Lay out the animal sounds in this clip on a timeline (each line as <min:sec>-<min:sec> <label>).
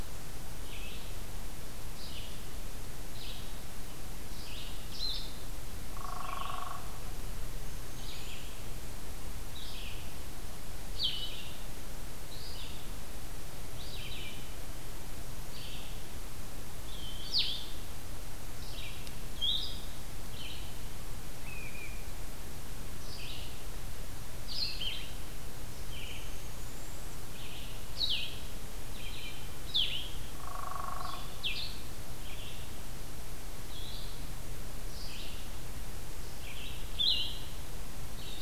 0:00.0-0:38.4 Red-eyed Vireo (Vireo olivaceus)
0:04.8-0:05.5 Blue-headed Vireo (Vireo solitarius)
0:05.9-0:06.8 Hairy Woodpecker (Dryobates villosus)
0:07.5-0:08.5 unidentified call
0:10.8-0:11.4 Blue-headed Vireo (Vireo solitarius)
0:17.2-0:38.4 Blue-headed Vireo (Vireo solitarius)
0:21.3-0:22.1 unidentified call
0:25.6-0:27.3 unidentified call
0:30.2-0:31.4 Hairy Woodpecker (Dryobates villosus)